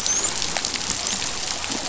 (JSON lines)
{"label": "biophony, dolphin", "recorder": "SoundTrap 500"}